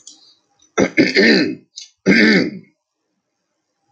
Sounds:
Throat clearing